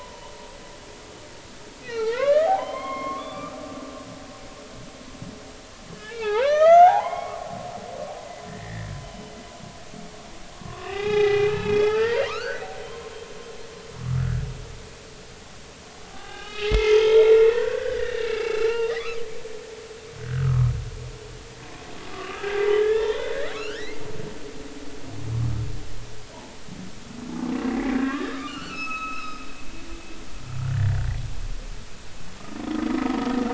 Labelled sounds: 1.8	3.6	humpback whale, 0.80 to 4.4 kHz
5.9	7.5	humpback whale, 0.80 to 6.4 kHz
8.5	9.3	humpback whale, 1.7 to 3.1 kHz
10.5	13.1	humpback whale, 0.80 to 4.7 kHz
14.0	14.2	humpback whale, 1.1 to 1.3 kHz
16.0	19.2	humpback whale, 0.80 to 6.1 kHz
20.2	20.7	humpback whale, 1.0 to 1.7 kHz
22.1	24.0	humpback whale, 1.1 to 4.5 kHz
27.5	29.4	humpback whale, 1.0 to 6.6 kHz
30.7	31.0	humpback whale, 1.6 to 2.0 kHz

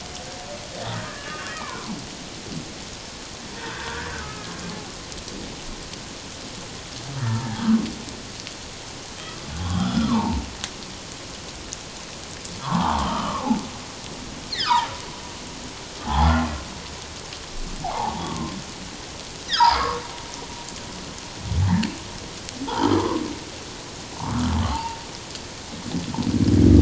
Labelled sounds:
1.2	2.0	humpback whale, 0.81 to 2.9 kHz
3.6	4.5	humpback whale, 1.2 to 1.8 kHz
7.2	7.7	humpback whale, 0.78 to 1.8 kHz
9.6	10.4	humpback whale, 0.78 to 3.4 kHz
12.6	13.5	humpback whale, 0.78 to 3.2 kHz
14.5	14.9	humpback whale, 0.78 to 2.4 kHz
16.0	16.4	humpback whale, 0.78 to 3.6 kHz
17.8	18.5	humpback whale, 0.78 to 1.2 kHz
19.5	20.0	humpback whale, 0.94 to 5.3 kHz
22.8	23.2	humpback whale, 0.91 to 1.4 kHz
24.2	25.0	humpback whale, 0.78 to 1.5 kHz

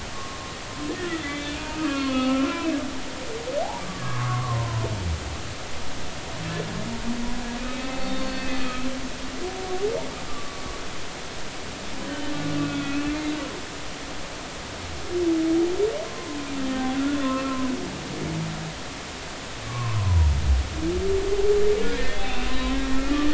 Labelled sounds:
0.1	0.4	humpback whale, 1.0 to 1.1 kHz
1.0	2.6	humpback whale, 1.0 to 3.6 kHz
3.9	4.9	humpback whale, 0.90 to 1.3 kHz
7.6	8.7	humpback whale, 1.5 to 4.5 kHz
10.3	10.6	humpback whale, 1.1 to 1.2 kHz
12.1	12.3	humpback whale, 3.0 to 3.1 kHz
12.6	13.3	humpback whale, 1.3 to 2.7 kHz
16.0	16.4	humpback whale, 0.96 to 1.1 kHz
17.2	17.7	humpback whale, 0.99 to 1.1 kHz
19.7	20.3	humpback whale, 0.90 to 1.2 kHz
22.0	23.3	humpback whale, 0.99 to 2.8 kHz

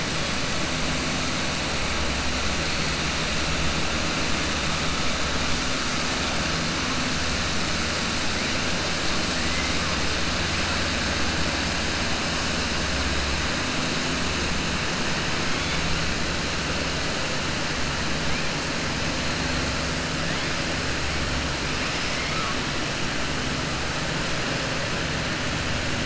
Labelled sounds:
22.1	22.6	killer whale, 1.1 to 3.1 kHz

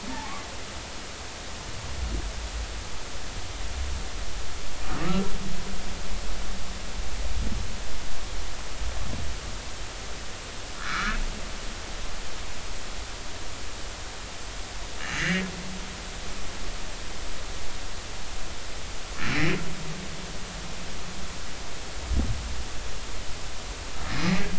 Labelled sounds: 0.1	0.4	humpback whale, 0.80 to 0.96 kHz
5.0	5.3	humpback whale, 1.2 to 1.4 kHz
10.8	11.2	humpback whale, 1.1 to 1.8 kHz
15.2	15.5	humpback whale, 1.5 to 2.9 kHz
19.3	19.6	humpback whale, 2.1 to 2.5 kHz

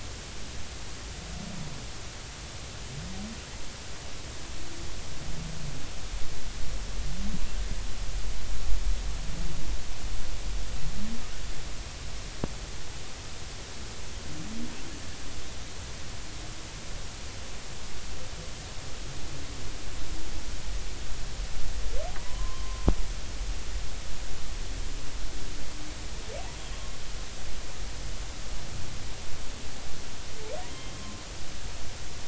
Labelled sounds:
22.2	22.9	humpback whale, 0.90 to 1.2 kHz
30.7	31.2	humpback whale, 0.99 to 3.2 kHz

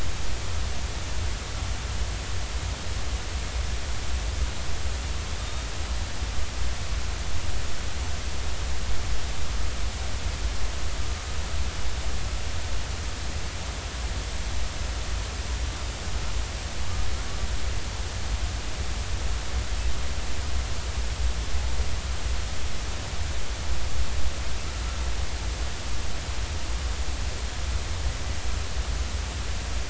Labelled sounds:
5.4	5.7	killer whale, northern resident, 3.6 to 3.8 kHz

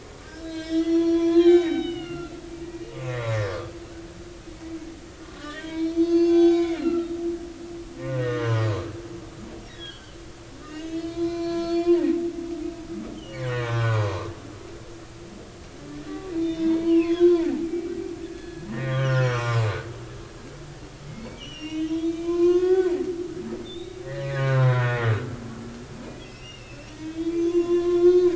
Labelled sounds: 0.2	3.8	humpback whale, 0.96 to 7.6 kHz
5.2	7.1	humpback whale, 0.80 to 6.2 kHz
8.1	8.6	humpback whale, 0.90 to 2.0 kHz
9.7	10.1	humpback whale, 1.5 to 3.5 kHz
10.6	12.1	humpback whale, 0.80 to 6.9 kHz
13.2	14.3	humpback whale, 0.83 to 3.3 kHz
16.1	17.9	humpback whale, 0.80 to 4.4 kHz
18.2	19.7	humpback whale, 0.86 to 3.4 kHz
20.4	22.9	humpback whale, 0.96 to 7.5 kHz
23.6	25.1	humpback whale, 0.86 to 4.1 kHz
26.1	28.3	humpback whale, 0.96 to 5.8 kHz

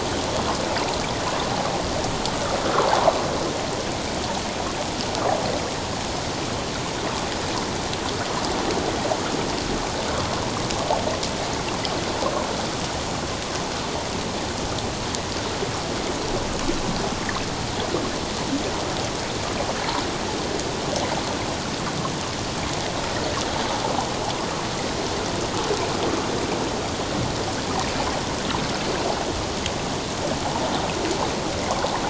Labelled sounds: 2.7	3.0	water noise, 0.78 to 1.4 kHz

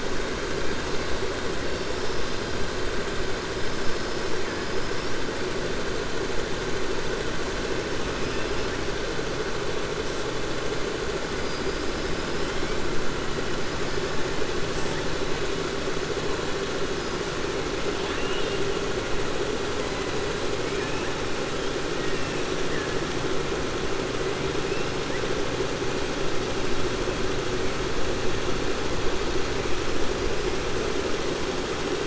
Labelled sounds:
17.9	18.6	killer whale, 1.7 to 4.3 kHz

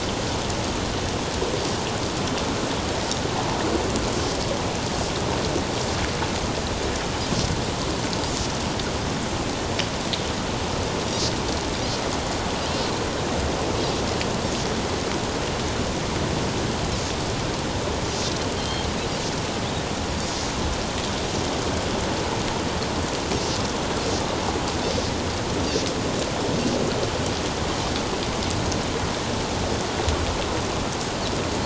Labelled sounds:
11.1	11.3	Pacific white-sided dolphin, 5.6 to 6.0 kHz
18.6	18.9	Pacific white-sided dolphin, 3.1 to 4.4 kHz

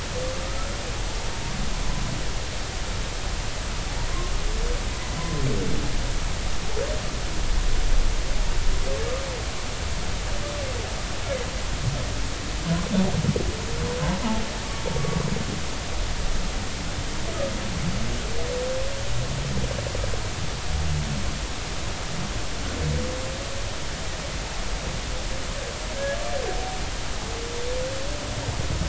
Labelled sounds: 25.9	26.2	humpback whale, 1.5 to 1.8 kHz

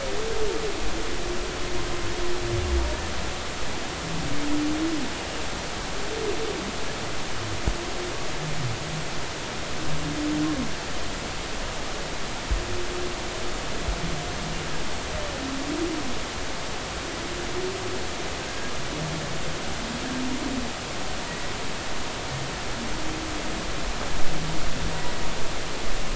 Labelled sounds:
18.4	18.7	humpback whale, 1.5 to 1.7 kHz
24.9	25.1	humpback whale, 1.7 to 2.0 kHz

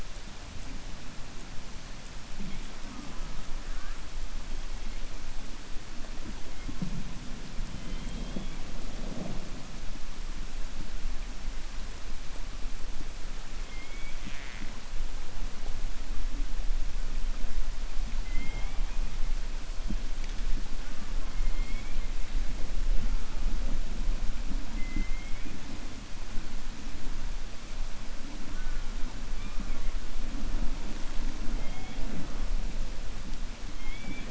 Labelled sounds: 33.7	34.2	killer whale, 1.8 to 3.5 kHz

